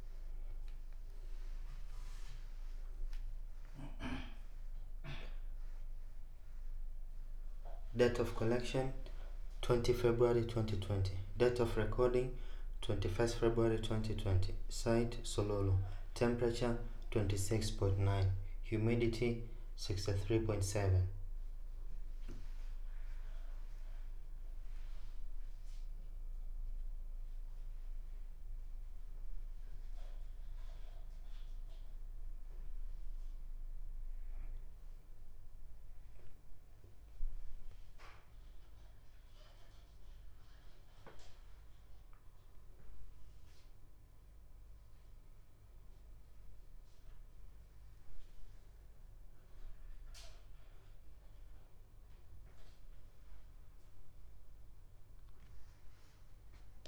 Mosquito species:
no mosquito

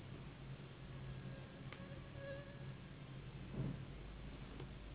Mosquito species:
Anopheles gambiae s.s.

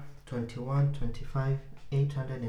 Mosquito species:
Anopheles funestus s.l.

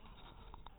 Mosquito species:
mosquito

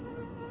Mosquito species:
Anopheles albimanus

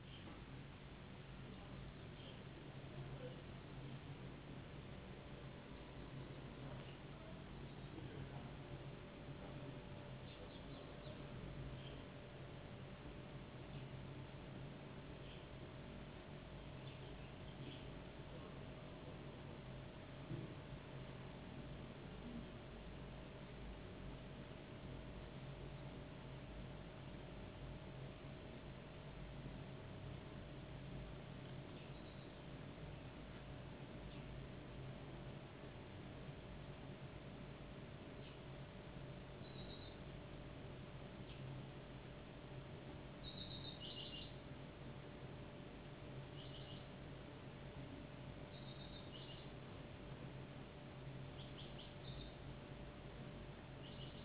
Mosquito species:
no mosquito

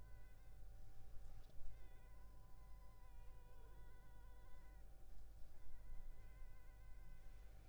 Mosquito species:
Culex pipiens complex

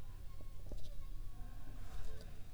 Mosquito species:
Anopheles funestus s.s.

